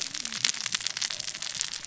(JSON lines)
{"label": "biophony, cascading saw", "recorder": "SoundTrap 600 or HydroMoth"}